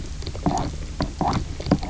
{"label": "biophony, knock croak", "recorder": "SoundTrap 300"}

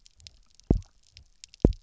{"label": "biophony, double pulse", "recorder": "SoundTrap 300"}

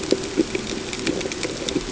{"label": "ambient", "recorder": "HydroMoth"}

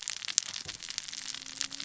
{"label": "biophony, cascading saw", "recorder": "SoundTrap 600 or HydroMoth"}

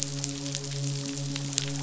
{"label": "biophony, midshipman", "recorder": "SoundTrap 500"}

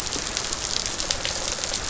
{"label": "biophony, rattle response", "recorder": "SoundTrap 500"}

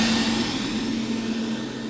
{"label": "anthrophony, boat engine", "recorder": "SoundTrap 500"}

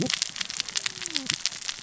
{"label": "biophony, cascading saw", "recorder": "SoundTrap 600 or HydroMoth"}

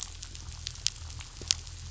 {"label": "anthrophony, boat engine", "recorder": "SoundTrap 500"}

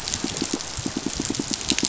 {"label": "biophony, pulse", "recorder": "SoundTrap 500"}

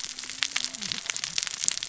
{"label": "biophony, cascading saw", "recorder": "SoundTrap 600 or HydroMoth"}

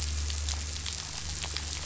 {"label": "anthrophony, boat engine", "recorder": "SoundTrap 500"}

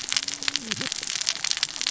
{"label": "biophony, cascading saw", "recorder": "SoundTrap 600 or HydroMoth"}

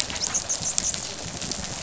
{"label": "biophony, dolphin", "recorder": "SoundTrap 500"}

